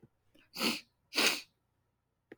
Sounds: Sniff